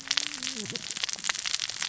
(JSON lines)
{"label": "biophony, cascading saw", "recorder": "SoundTrap 600 or HydroMoth"}